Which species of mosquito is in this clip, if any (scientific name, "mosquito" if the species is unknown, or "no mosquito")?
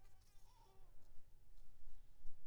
Anopheles maculipalpis